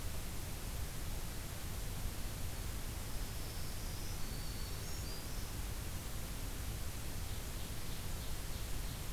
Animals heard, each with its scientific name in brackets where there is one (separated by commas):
Ovenbird (Seiurus aurocapilla), Black-throated Green Warbler (Setophaga virens)